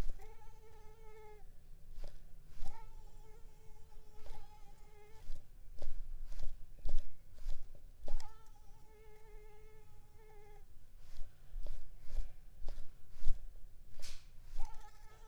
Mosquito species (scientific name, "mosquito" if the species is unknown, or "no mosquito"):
Mansonia uniformis